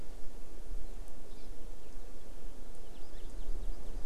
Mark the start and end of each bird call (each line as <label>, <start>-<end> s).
Hawaii Amakihi (Chlorodrepanis virens), 1.3-1.5 s